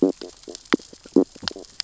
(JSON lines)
{"label": "biophony, stridulation", "recorder": "SoundTrap 600 or HydroMoth"}